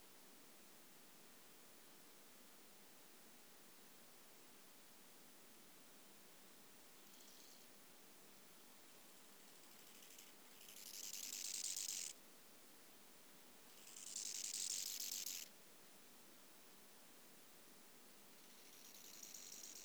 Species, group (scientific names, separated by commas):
Chorthippus biguttulus, Orthoptera